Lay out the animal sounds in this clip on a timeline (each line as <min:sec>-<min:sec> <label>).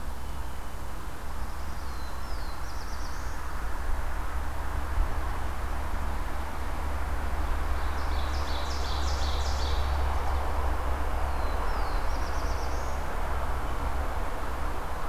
0:00.0-0:00.9 Blue Jay (Cyanocitta cristata)
0:01.2-0:03.4 Black-throated Blue Warbler (Setophaga caerulescens)
0:07.5-0:10.4 Ovenbird (Seiurus aurocapilla)
0:11.1-0:13.4 Black-throated Blue Warbler (Setophaga caerulescens)